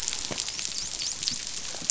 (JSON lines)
{"label": "biophony, dolphin", "recorder": "SoundTrap 500"}